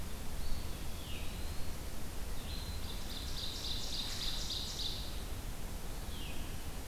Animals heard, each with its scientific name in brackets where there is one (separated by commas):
Veery (Catharus fuscescens), Eastern Wood-Pewee (Contopus virens), Ovenbird (Seiurus aurocapilla)